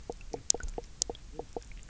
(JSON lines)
{"label": "biophony, knock croak", "recorder": "SoundTrap 300"}